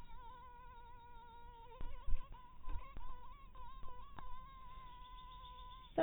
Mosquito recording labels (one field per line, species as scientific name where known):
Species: mosquito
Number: one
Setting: cup